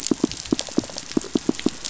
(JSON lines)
{"label": "biophony, pulse", "recorder": "SoundTrap 500"}